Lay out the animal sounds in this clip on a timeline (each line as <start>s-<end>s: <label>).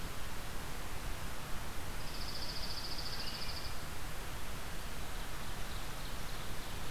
1.9s-3.8s: Dark-eyed Junco (Junco hyemalis)
5.0s-6.9s: Ovenbird (Seiurus aurocapilla)